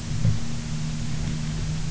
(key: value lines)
label: anthrophony, boat engine
recorder: SoundTrap 300